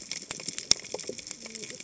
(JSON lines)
{"label": "biophony, cascading saw", "recorder": "HydroMoth"}